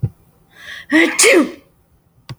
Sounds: Sneeze